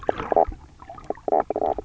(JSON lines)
{"label": "biophony, knock croak", "recorder": "SoundTrap 300"}